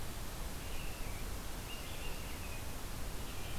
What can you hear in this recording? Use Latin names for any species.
Turdus migratorius